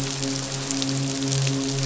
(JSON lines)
{"label": "biophony, midshipman", "recorder": "SoundTrap 500"}